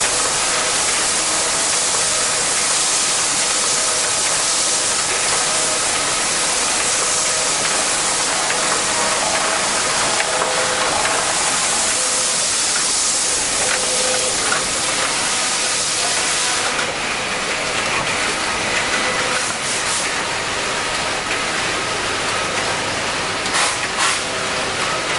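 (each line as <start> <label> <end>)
0.0 A steady, rhythmic hum of industrial sewing machines fills the space. 25.2
10.4 Sewing accompanied by a tika tik sound. 16.9
23.3 Sewing sounds from a metallic machine with a finishing structure. 25.2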